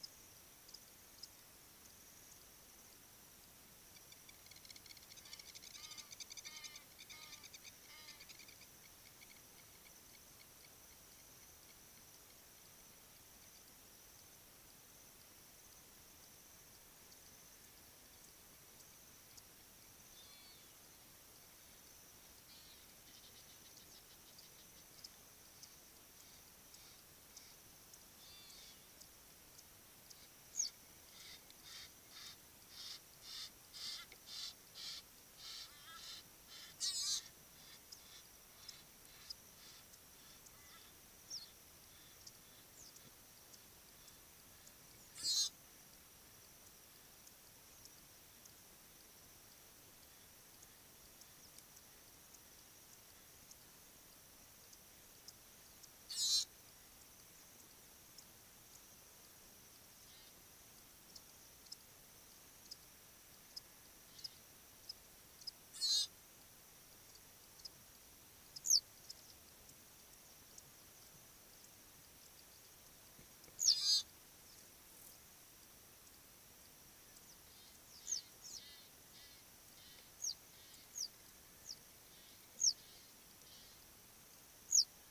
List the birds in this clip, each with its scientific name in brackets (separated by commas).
Hadada Ibis (Bostrychia hagedash), Western Yellow Wagtail (Motacilla flava), Long-toed Lapwing (Vanellus crassirostris), Egyptian Goose (Alopochen aegyptiaca)